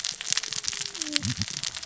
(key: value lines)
label: biophony, cascading saw
recorder: SoundTrap 600 or HydroMoth